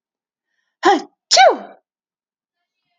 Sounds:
Sneeze